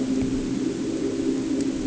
{"label": "anthrophony, boat engine", "recorder": "HydroMoth"}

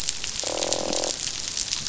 {"label": "biophony, croak", "recorder": "SoundTrap 500"}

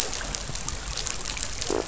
{"label": "biophony", "recorder": "SoundTrap 500"}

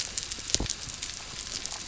{"label": "biophony", "recorder": "SoundTrap 300"}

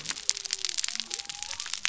{"label": "biophony", "recorder": "SoundTrap 300"}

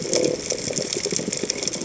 {"label": "biophony", "recorder": "HydroMoth"}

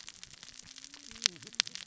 {"label": "biophony, cascading saw", "recorder": "SoundTrap 600 or HydroMoth"}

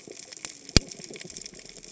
{"label": "biophony, cascading saw", "recorder": "HydroMoth"}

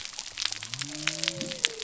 {"label": "biophony", "recorder": "SoundTrap 300"}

